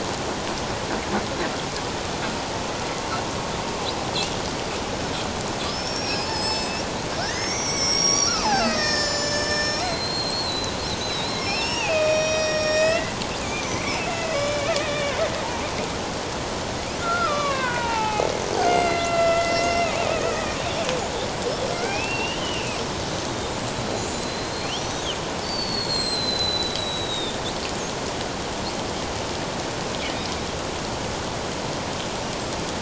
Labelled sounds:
5.7	6.9	killer whale, Bigg's (transient), 2.4 to 7.9 kHz
7.2	15.3	killer whale, Bigg's (transient), 0.78 to 8.0 kHz
17.0	20.6	killer whale, Bigg's (transient), 0.78 to 5.0 kHz
21.8	22.8	killer whale, Bigg's (transient), 2.2 to 3.2 kHz
23.8	25.0	killer whale, Bigg's (transient), 3.9 to 8.0 kHz
25.4	27.4	killer whale, Bigg's (transient), 3.5 to 8.0 kHz

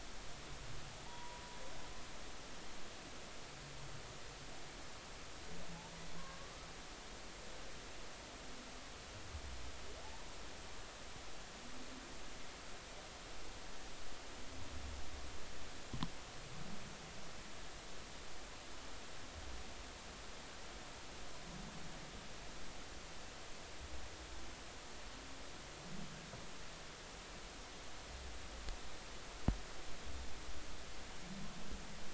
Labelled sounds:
1.1	1.4	humpback whale, 0.86 to 1.0 kHz
6.2	6.7	humpback whale, 0.96 to 1.3 kHz

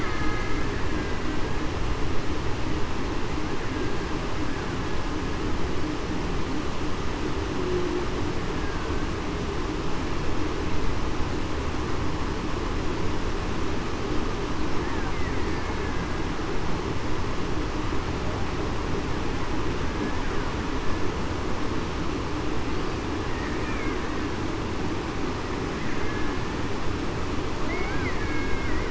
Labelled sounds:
0.0	0.4	killer whale, Bigg's (transient), 1.2 to 2.1 kHz
23.6	24.0	killer whale, Bigg's (transient), 2.0 to 2.4 kHz
28.2	28.7	killer whale, Bigg's (transient), 1.5 to 1.7 kHz

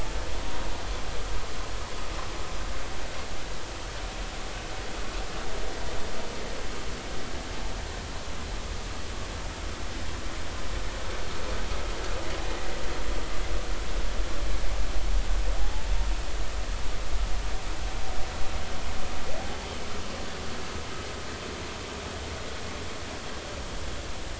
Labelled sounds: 15.6	15.9	humpback whale, 0.80 to 0.93 kHz

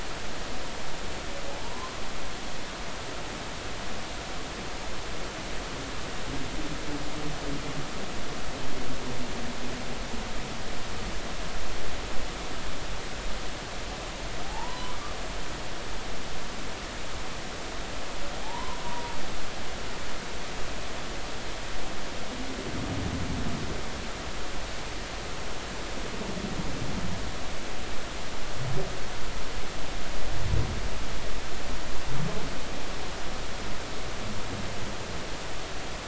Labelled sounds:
1.5	2.0	humpback whale, 0.80 to 1.1 kHz
14.4	14.9	humpback whale, 0.80 to 1.1 kHz
18.4	19.1	humpback whale, 0.80 to 1.1 kHz

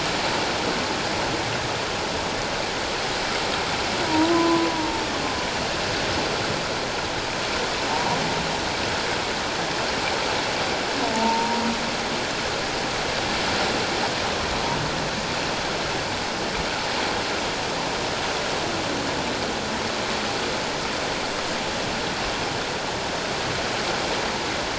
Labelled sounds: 4.1	5.0	humpback whale, 0.88 to 1.1 kHz
7.9	8.2	humpback whale, 0.78 to 1.0 kHz
11.1	11.6	humpback whale, 0.84 to 1.0 kHz

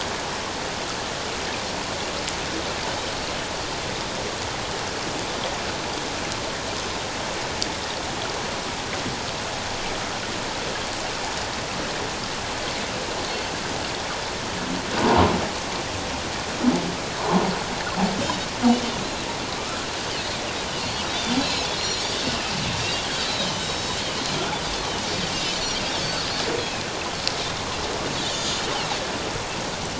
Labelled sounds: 18.2	18.5	Pacific white-sided dolphin, 3.6 to 3.9 kHz
19.6	19.9	Pacific white-sided dolphin, 1.2 to 1.4 kHz
20.8	22.1	Pacific white-sided dolphin, 2.5 to 4.4 kHz
23.4	24.0	Pacific white-sided dolphin, 2.9 to 6.2 kHz
25.3	26.3	Pacific white-sided dolphin, 2.6 to 4.7 kHz
28.2	28.6	Pacific white-sided dolphin, 3.4 to 7.3 kHz

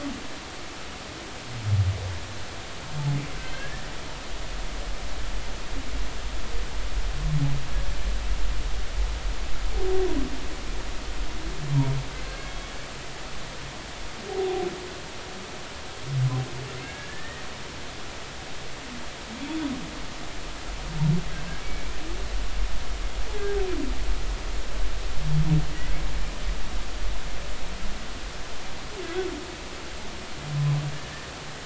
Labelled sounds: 3.5	3.9	humpback whale, 1.5 to 1.9 kHz
12.2	12.5	humpback whale, 1.6 to 1.7 kHz
14.3	14.6	humpback whale, 0.80 to 0.86 kHz
16.8	17.4	humpback whale, 1.6 to 1.9 kHz
21.6	22.0	humpback whale, 2.2 to 2.4 kHz

